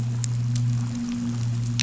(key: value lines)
label: anthrophony, boat engine
recorder: SoundTrap 500